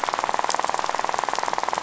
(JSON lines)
{"label": "biophony, rattle", "recorder": "SoundTrap 500"}